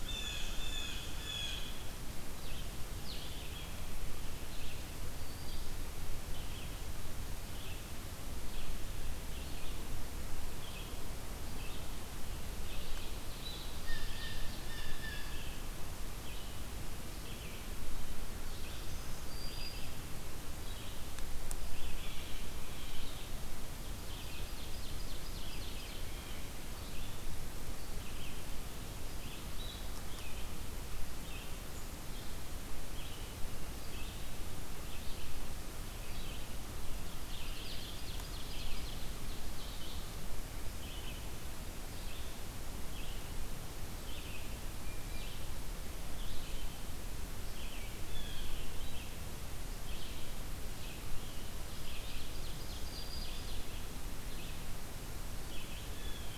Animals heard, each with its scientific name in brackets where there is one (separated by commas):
Ovenbird (Seiurus aurocapilla), Blue Jay (Cyanocitta cristata), Black-throated Green Warbler (Setophaga virens), Red-eyed Vireo (Vireo olivaceus), Blue-headed Vireo (Vireo solitarius)